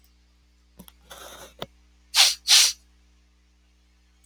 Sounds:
Sniff